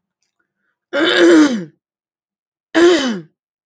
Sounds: Throat clearing